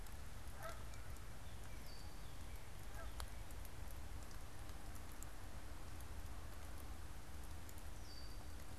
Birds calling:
Canada Goose (Branta canadensis)
Red-winged Blackbird (Agelaius phoeniceus)

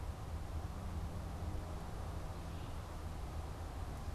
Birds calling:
Red-eyed Vireo (Vireo olivaceus)

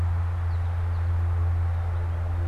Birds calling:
American Goldfinch (Spinus tristis)

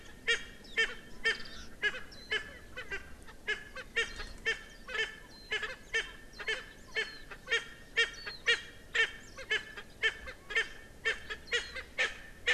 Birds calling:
Warbling White-eye (Zosterops japonicus)
Erckel's Francolin (Pternistis erckelii)

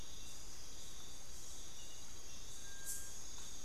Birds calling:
Bartlett's Tinamou (Crypturellus bartletti)

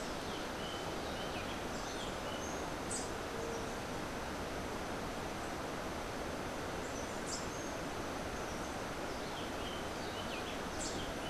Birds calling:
Rufous-breasted Wren (Pheugopedius rutilus)
Rufous-capped Warbler (Basileuterus rufifrons)

